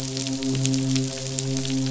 {"label": "biophony, midshipman", "recorder": "SoundTrap 500"}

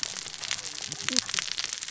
{"label": "biophony, cascading saw", "recorder": "SoundTrap 600 or HydroMoth"}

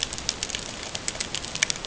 {"label": "ambient", "recorder": "HydroMoth"}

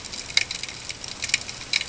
{"label": "ambient", "recorder": "HydroMoth"}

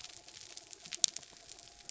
{"label": "anthrophony, mechanical", "recorder": "SoundTrap 300"}
{"label": "biophony", "recorder": "SoundTrap 300"}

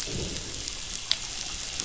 {"label": "biophony, growl", "recorder": "SoundTrap 500"}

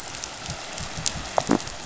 {"label": "biophony", "recorder": "SoundTrap 500"}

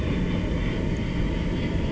{"label": "anthrophony, boat engine", "recorder": "SoundTrap 300"}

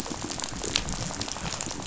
{"label": "biophony, rattle", "recorder": "SoundTrap 500"}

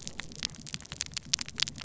{"label": "biophony", "recorder": "SoundTrap 300"}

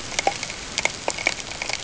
{"label": "ambient", "recorder": "HydroMoth"}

